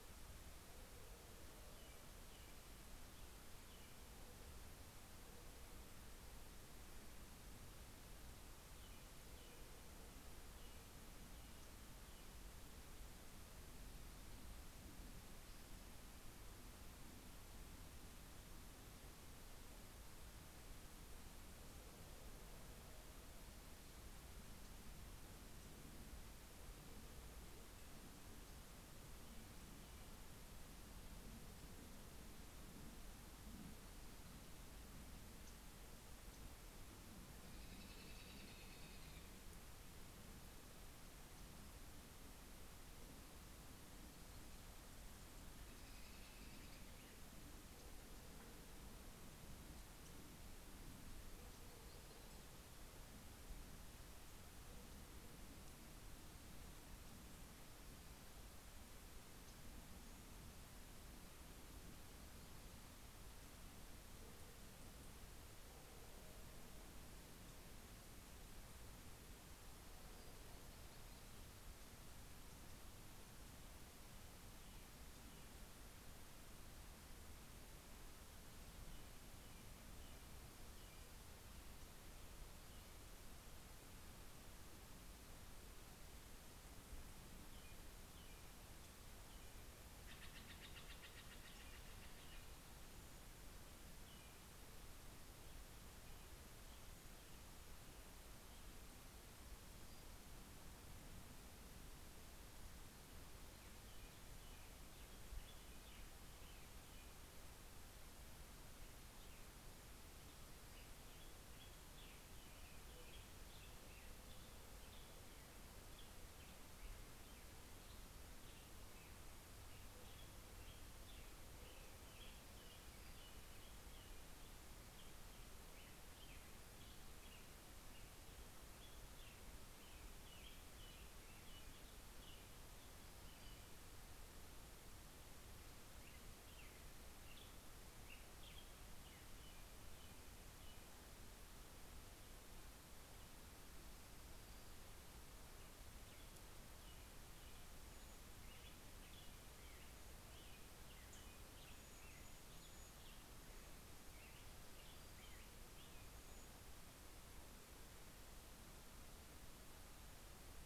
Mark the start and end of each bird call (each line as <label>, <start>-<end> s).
American Robin (Turdus migratorius), 1.3-4.4 s
American Robin (Turdus migratorius), 8.1-12.6 s
American Robin (Turdus migratorius), 37.1-39.6 s
American Robin (Turdus migratorius), 45.3-47.5 s
American Robin (Turdus migratorius), 77.7-82.3 s
American Robin (Turdus migratorius), 86.8-89.9 s
Steller's Jay (Cyanocitta stelleri), 89.8-92.8 s
American Robin (Turdus migratorius), 93.5-99.1 s
American Robin (Turdus migratorius), 103.8-132.7 s
American Robin (Turdus migratorius), 134.6-141.1 s
American Robin (Turdus migratorius), 145.4-156.7 s